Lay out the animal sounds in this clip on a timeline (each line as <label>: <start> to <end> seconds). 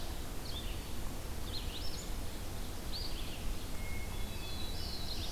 Red-eyed Vireo (Vireo olivaceus): 0.0 to 5.3 seconds
Hermit Thrush (Catharus guttatus): 3.7 to 4.8 seconds
Black-throated Blue Warbler (Setophaga caerulescens): 4.1 to 5.3 seconds